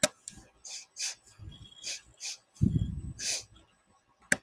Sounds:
Sneeze